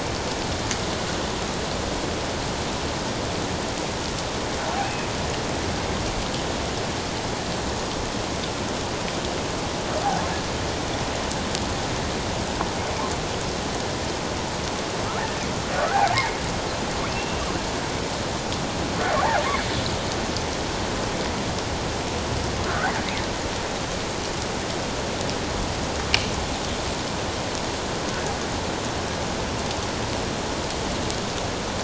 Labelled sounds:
4.8	5.1	killer whale, offshore, 2.2 to 2.6 kHz
15.8	16.4	killer whale, offshore, 1.2 to 2.2 kHz
17.1	17.4	killer whale, offshore, 2.6 to 2.8 kHz
22.6	22.9	killer whale, offshore, 1.2 to 1.7 kHz

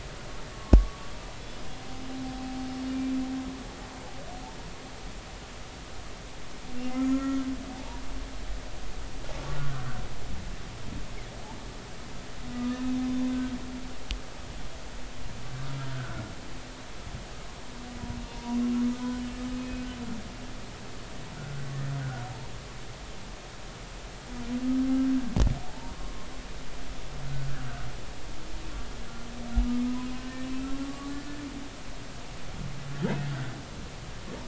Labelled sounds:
0.0	1.1	humpback whale, 1.0 to 1.7 kHz
6.9	8.1	humpback whale, 0.80 to 2.1 kHz
9.6	9.9	humpback whale, 1.4 to 1.6 kHz
12.5	12.8	humpback whale, 1.2 to 1.3 kHz
15.9	16.2	humpback whale, 1.3 to 1.6 kHz
18.3	18.7	humpback whale, 0.90 to 1.1 kHz
19.0	19.9	humpback whale, 1.4 to 2.6 kHz
21.4	21.9	humpback whale, 1.3 to 2.0 kHz
25.7	26.3	humpback whale, 0.83 to 1.1 kHz
30.8	31.1	humpback whale, 1.1 to 1.2 kHz

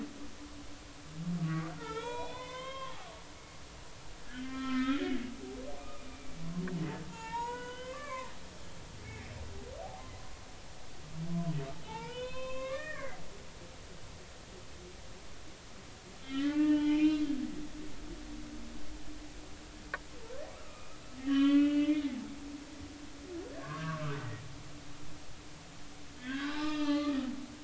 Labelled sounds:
1.4	3.1	humpback whale, 0.80 to 4.3 kHz
4.2	5.1	humpback whale, 1.0 to 3.8 kHz
5.8	6.4	humpback whale, 1.1 to 2.4 kHz
7.1	8.3	humpback whale, 0.83 to 3.3 kHz
9.0	9.3	humpback whale, 2.1 to 2.5 kHz
11.8	13.2	humpback whale, 0.80 to 5.0 kHz
13.6	14.2	humpback whale, 1.5 to 2.0 kHz
16.2	17.3	humpback whale, 0.83 to 3.7 kHz
20.5	22.0	humpback whale, 1.1 to 3.5 kHz
23.5	24.4	humpback whale, 0.99 to 2.0 kHz
26.2	27.3	humpback whale, 1.1 to 4.2 kHz

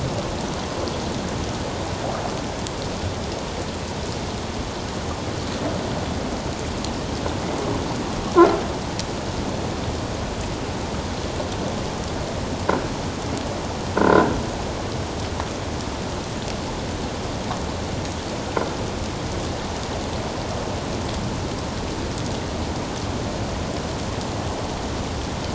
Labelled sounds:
14.0	14.2	croaking sound likely from a nearby submerged object, 1.3 to 1.6 kHz

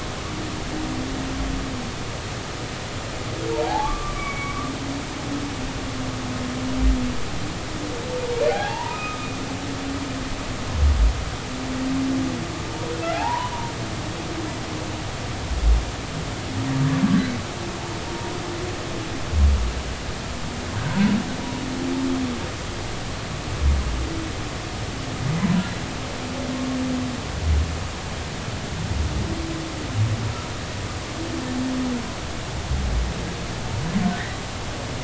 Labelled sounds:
3.7	4.6	humpback whale, 0.80 to 2.4 kHz
8.4	9.3	humpback whale, 0.80 to 2.6 kHz
13.1	13.7	humpback whale, 0.80 to 1.1 kHz

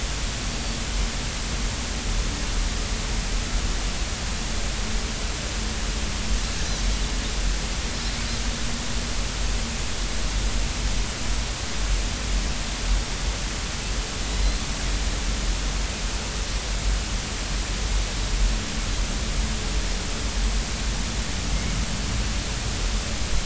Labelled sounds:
0.5	0.8	Pacific white-sided dolphin, 4.4 to 4.6 kHz
14.3	14.6	Pacific white-sided dolphin, 3.8 to 4.3 kHz

